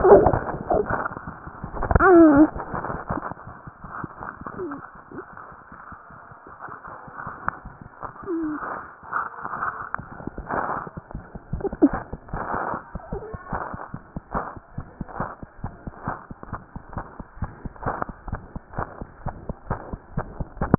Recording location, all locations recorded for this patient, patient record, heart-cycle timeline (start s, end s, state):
mitral valve (MV)
mitral valve (MV)
#Age: Infant
#Sex: Female
#Height: 46.0 cm
#Weight: 3.9 kg
#Pregnancy status: False
#Murmur: Present
#Murmur locations: mitral valve (MV)
#Most audible location: mitral valve (MV)
#Systolic murmur timing: Holosystolic
#Systolic murmur shape: Plateau
#Systolic murmur grading: I/VI
#Systolic murmur pitch: Low
#Systolic murmur quality: Blowing
#Diastolic murmur timing: nan
#Diastolic murmur shape: nan
#Diastolic murmur grading: nan
#Diastolic murmur pitch: nan
#Diastolic murmur quality: nan
#Outcome: Abnormal
#Campaign: 2015 screening campaign
0.00	14.75	unannotated
14.75	14.84	S1
14.84	14.97	systole
14.97	15.04	S2
15.04	15.18	diastole
15.18	15.26	S1
15.26	15.41	systole
15.41	15.45	S2
15.45	15.62	diastole
15.62	15.69	S1
15.69	15.86	systole
15.86	15.91	S2
15.91	16.06	diastole
16.06	16.13	S1
16.13	16.29	systole
16.29	16.34	S2
16.34	16.52	diastole
16.52	16.58	S1
16.58	16.75	systole
16.75	16.79	S2
16.79	16.95	diastole
16.95	17.02	S1
17.02	17.19	systole
17.19	17.22	S2
17.22	17.40	diastole
17.40	17.46	S1
17.46	17.64	systole
17.64	17.68	S2
17.68	17.83	diastole
17.83	17.92	S1
17.92	18.07	systole
18.07	18.12	S2
18.12	18.31	diastole
18.31	18.37	S1
18.37	18.53	systole
18.53	18.59	S2
18.59	18.76	diastole
18.76	18.82	S1
18.82	18.99	systole
18.99	19.04	S2
19.04	19.23	diastole
19.23	19.33	S1
19.33	19.47	systole
19.47	19.52	S2
19.52	19.69	diastole
19.69	19.75	S1
19.75	19.91	systole
19.91	19.96	S2
19.96	20.16	diastole
20.16	20.21	S1
20.21	20.39	systole
20.39	20.43	S2
20.43	20.59	diastole
20.59	20.68	S1
20.68	20.78	unannotated